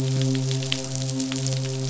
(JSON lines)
{"label": "biophony, midshipman", "recorder": "SoundTrap 500"}